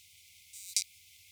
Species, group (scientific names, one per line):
Poecilimon macedonicus
Orthoptera